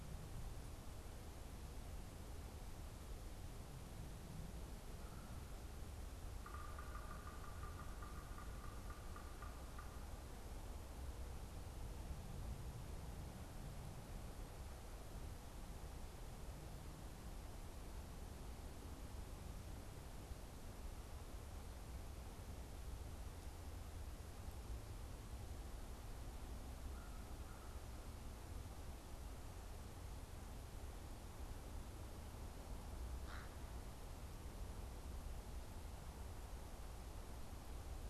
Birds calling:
American Crow (Corvus brachyrhynchos), unidentified bird, Yellow-bellied Sapsucker (Sphyrapicus varius)

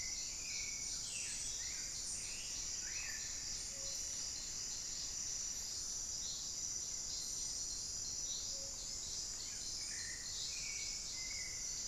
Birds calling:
Plumbeous Antbird (Myrmelastes hyperythrus), Paradise Tanager (Tangara chilensis), Black-billed Thrush (Turdus ignobilis), unidentified bird

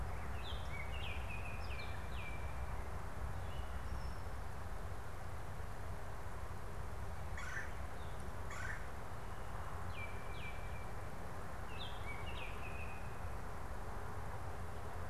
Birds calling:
Red-bellied Woodpecker (Melanerpes carolinus), Baltimore Oriole (Icterus galbula)

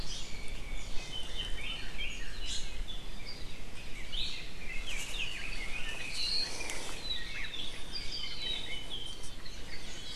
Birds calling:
Red-billed Leiothrix (Leiothrix lutea), Iiwi (Drepanis coccinea), Apapane (Himatione sanguinea)

